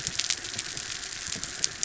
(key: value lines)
label: anthrophony, mechanical
recorder: SoundTrap 300